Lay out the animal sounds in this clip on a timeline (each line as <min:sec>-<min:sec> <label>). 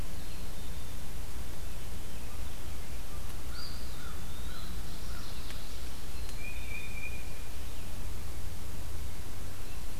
0:00.1-0:01.0 Black-capped Chickadee (Poecile atricapillus)
0:03.3-0:04.9 Eastern Wood-Pewee (Contopus virens)
0:03.4-0:05.4 American Crow (Corvus brachyrhynchos)
0:04.7-0:05.9 Mourning Warbler (Geothlypis philadelphia)
0:05.9-0:07.2 Black-capped Chickadee (Poecile atricapillus)
0:06.1-0:07.6 Tufted Titmouse (Baeolophus bicolor)